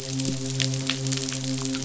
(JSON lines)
{"label": "biophony, midshipman", "recorder": "SoundTrap 500"}